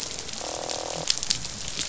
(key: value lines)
label: biophony, croak
recorder: SoundTrap 500